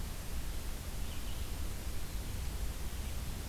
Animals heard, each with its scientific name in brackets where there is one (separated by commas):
Red-eyed Vireo (Vireo olivaceus)